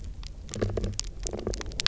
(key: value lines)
label: biophony
recorder: SoundTrap 300